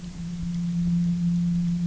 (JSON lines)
{"label": "anthrophony, boat engine", "recorder": "SoundTrap 300"}